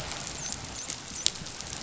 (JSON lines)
{"label": "biophony, dolphin", "recorder": "SoundTrap 500"}